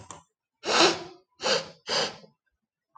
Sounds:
Sniff